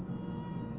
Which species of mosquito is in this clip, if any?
Aedes albopictus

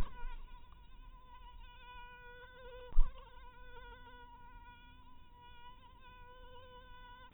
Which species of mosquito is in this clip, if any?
mosquito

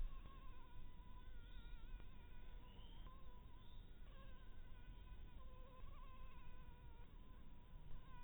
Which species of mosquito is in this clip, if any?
Anopheles harrisoni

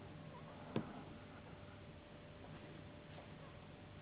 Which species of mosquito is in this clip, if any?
Anopheles gambiae s.s.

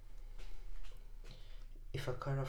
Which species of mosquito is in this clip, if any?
Anopheles squamosus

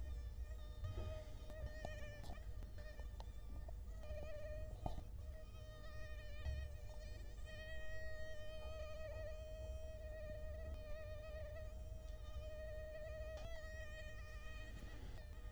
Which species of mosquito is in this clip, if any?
Culex quinquefasciatus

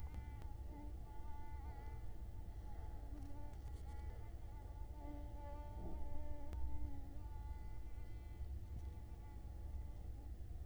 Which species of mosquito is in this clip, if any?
Culex quinquefasciatus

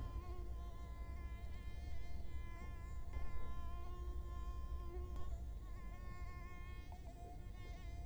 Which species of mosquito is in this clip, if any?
Culex quinquefasciatus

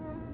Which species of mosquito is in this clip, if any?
Culex tarsalis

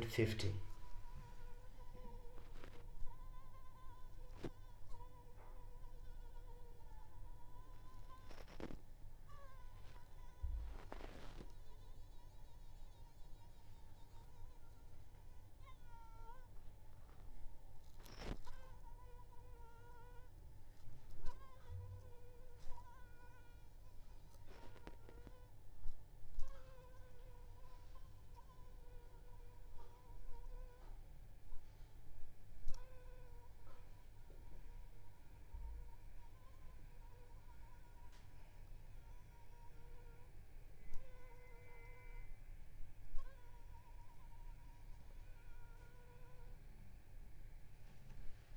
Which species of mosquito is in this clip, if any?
Anopheles arabiensis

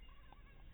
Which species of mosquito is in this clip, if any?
mosquito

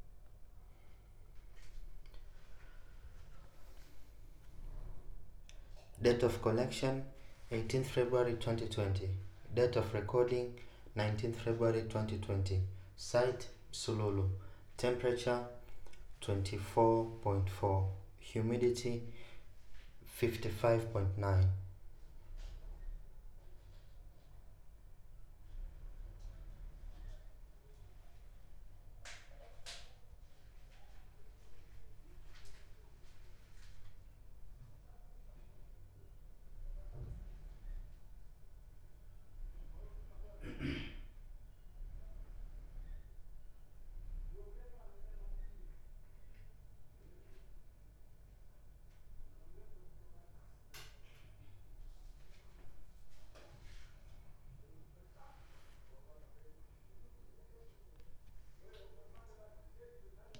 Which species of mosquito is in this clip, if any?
no mosquito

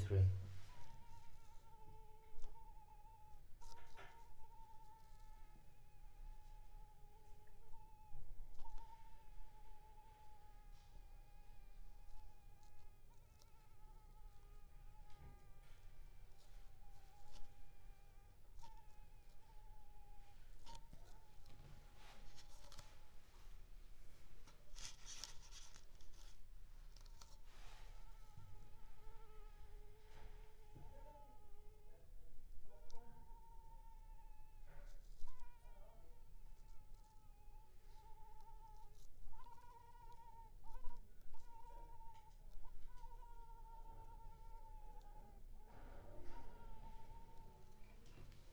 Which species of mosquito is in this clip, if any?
Culex pipiens complex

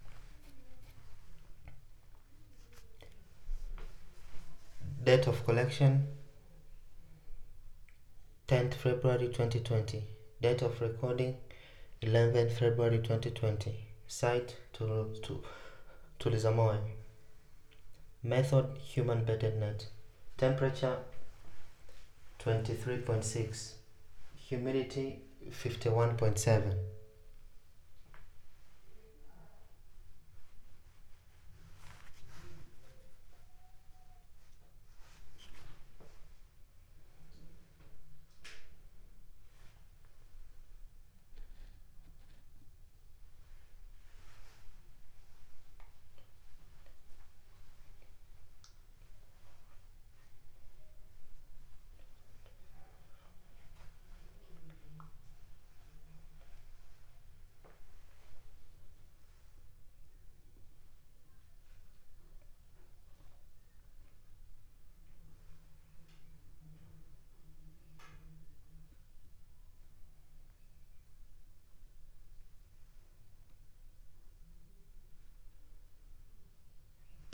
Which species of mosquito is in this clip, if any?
no mosquito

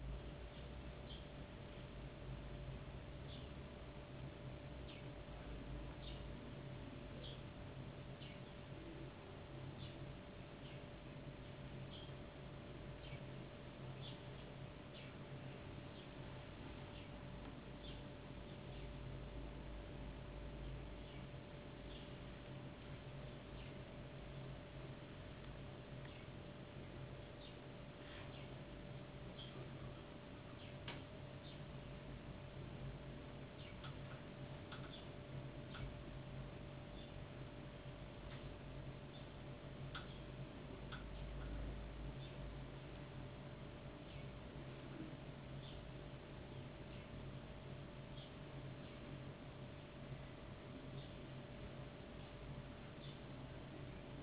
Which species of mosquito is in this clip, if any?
no mosquito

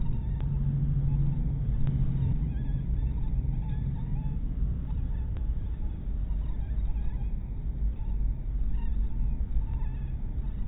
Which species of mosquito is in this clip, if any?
mosquito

